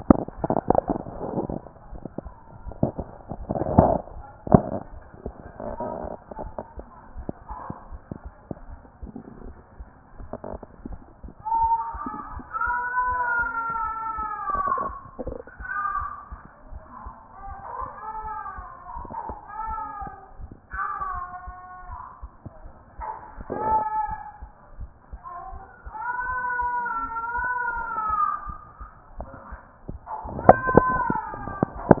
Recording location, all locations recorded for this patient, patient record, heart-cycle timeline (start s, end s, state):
mitral valve (MV)
aortic valve (AV)+pulmonary valve (PV)+tricuspid valve (TV)+mitral valve (MV)
#Age: nan
#Sex: Female
#Height: nan
#Weight: nan
#Pregnancy status: True
#Murmur: Absent
#Murmur locations: nan
#Most audible location: nan
#Systolic murmur timing: nan
#Systolic murmur shape: nan
#Systolic murmur grading: nan
#Systolic murmur pitch: nan
#Systolic murmur quality: nan
#Diastolic murmur timing: nan
#Diastolic murmur shape: nan
#Diastolic murmur grading: nan
#Diastolic murmur pitch: nan
#Diastolic murmur quality: nan
#Outcome: Normal
#Campaign: 2014 screening campaign
0.00	6.40	unannotated
6.40	6.52	S1
6.52	6.76	systole
6.76	6.86	S2
6.86	7.16	diastole
7.16	7.28	S1
7.28	7.48	systole
7.48	7.58	S2
7.58	7.90	diastole
7.90	8.00	S1
8.00	8.24	systole
8.24	8.32	S2
8.32	8.68	diastole
8.68	8.80	S1
8.80	9.02	systole
9.02	9.12	S2
9.12	9.44	diastole
9.44	9.56	S1
9.56	9.78	systole
9.78	9.88	S2
9.88	10.18	diastole
10.18	10.30	S1
10.30	10.50	systole
10.50	10.60	S2
10.60	10.86	diastole
10.86	11.00	S1
11.00	11.22	systole
11.22	11.28	S2
11.28	32.00	unannotated